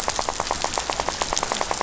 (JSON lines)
{"label": "biophony, rattle", "recorder": "SoundTrap 500"}